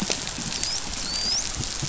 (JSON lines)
{"label": "biophony, dolphin", "recorder": "SoundTrap 500"}